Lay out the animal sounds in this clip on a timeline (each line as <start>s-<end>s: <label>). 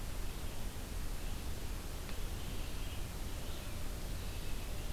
2.1s-4.9s: Red-eyed Vireo (Vireo olivaceus)